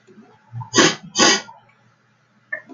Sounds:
Sniff